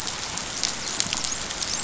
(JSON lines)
{"label": "biophony, dolphin", "recorder": "SoundTrap 500"}